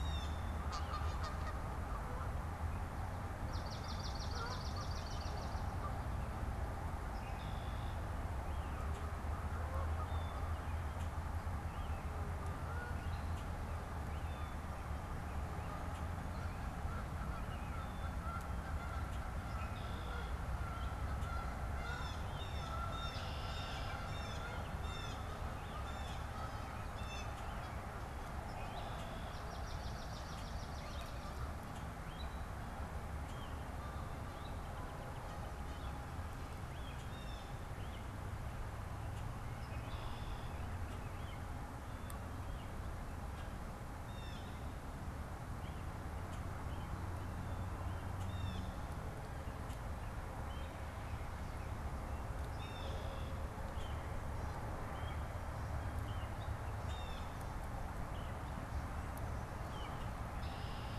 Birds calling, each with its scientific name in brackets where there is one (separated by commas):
Canada Goose (Branta canadensis), Blue Jay (Cyanocitta cristata), Swamp Sparrow (Melospiza georgiana), unidentified bird, Red-winged Blackbird (Agelaius phoeniceus)